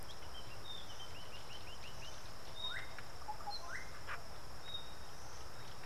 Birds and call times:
African Paradise-Flycatcher (Terpsiphone viridis): 1.2s
Northern Brownbul (Phyllastrephus strepitans): 4.2s

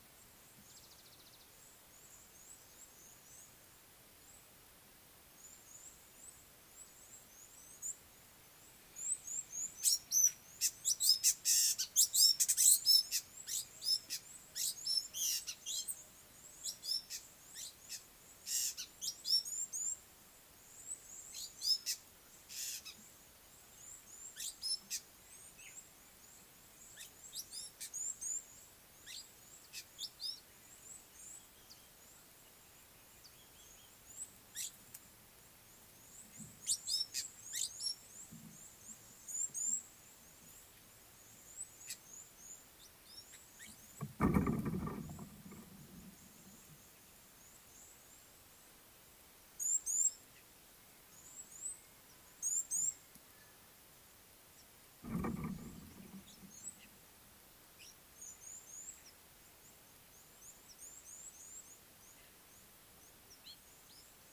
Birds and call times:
Red-cheeked Cordonbleu (Uraeginthus bengalus): 5.5s, 28.1s, 39.7s, 49.7s, 58.6s
African Gray Flycatcher (Bradornis microrhynchus): 9.9s, 15.3s, 22.7s, 37.2s

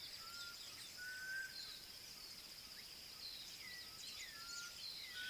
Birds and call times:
Black Cuckoo (Cuculus clamosus): 1.3s

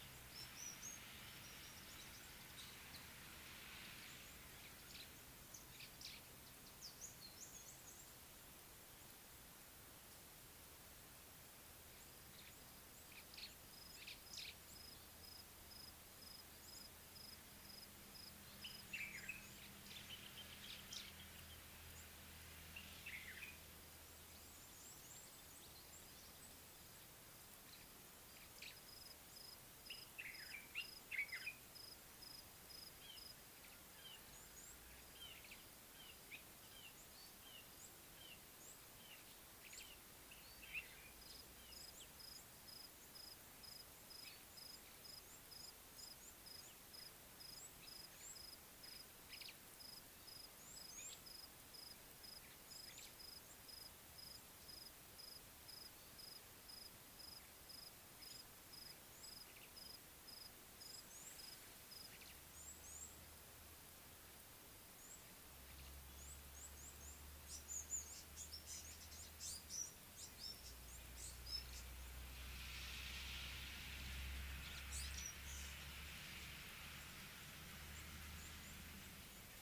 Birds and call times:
Red-cheeked Cordonbleu (Uraeginthus bengalus): 7.3s, 51.0s, 62.6s
White-browed Sparrow-Weaver (Plocepasser mahali): 14.0s
Common Bulbul (Pycnonotus barbatus): 30.3s
Red-fronted Barbet (Tricholaema diademata): 35.9s, 39.0s
African Gray Flycatcher (Bradornis microrhynchus): 67.8s

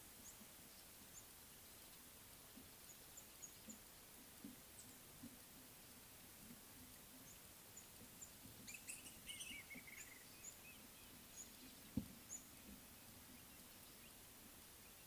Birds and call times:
Mouse-colored Penduline-Tit (Anthoscopus musculus): 3.2s
Black-throated Barbet (Tricholaema melanocephala): 9.7s

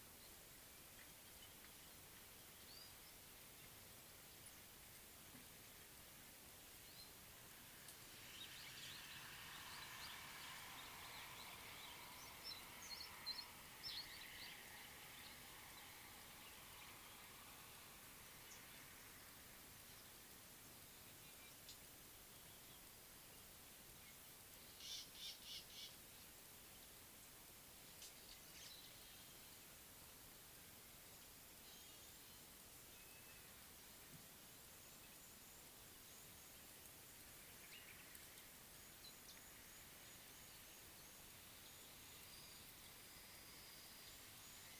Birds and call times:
Meyer's Parrot (Poicephalus meyeri): 13.3s
Rattling Cisticola (Cisticola chiniana): 25.2s

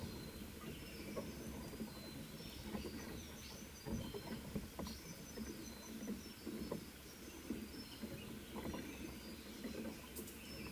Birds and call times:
African Paradise-Flycatcher (Terpsiphone viridis): 4.9s

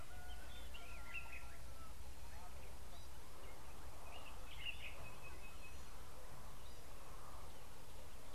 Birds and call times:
Common Bulbul (Pycnonotus barbatus): 4.6s

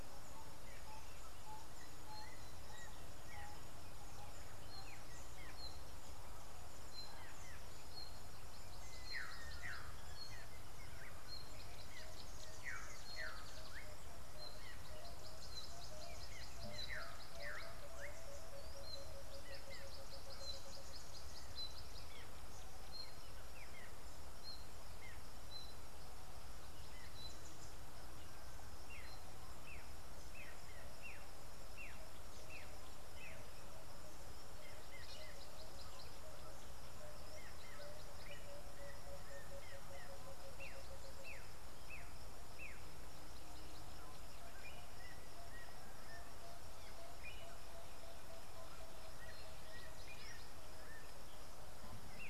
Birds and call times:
Slate-colored Boubou (Laniarius funebris): 13.3s
Tawny-flanked Prinia (Prinia subflava): 16.3s, 20.9s
Black-backed Puffback (Dryoscopus cubla): 31.2s

